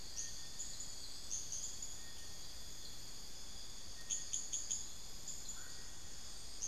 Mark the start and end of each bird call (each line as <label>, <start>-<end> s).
Bartlett's Tinamou (Crypturellus bartletti), 0.0-6.7 s
unidentified bird, 0.0-6.7 s